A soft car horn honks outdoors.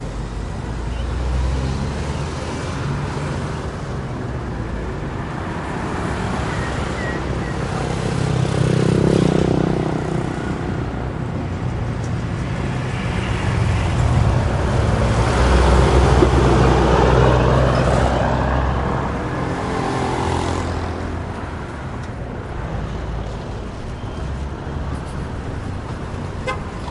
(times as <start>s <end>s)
26.4s 26.6s